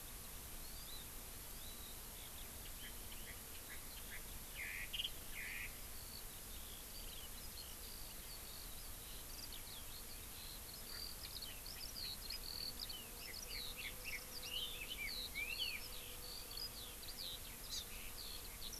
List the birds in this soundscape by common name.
Chinese Hwamei, Eurasian Skylark, Hawaii Amakihi